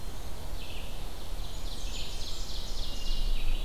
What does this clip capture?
Winter Wren, Red-eyed Vireo, Ovenbird, Blackburnian Warbler, Hermit Thrush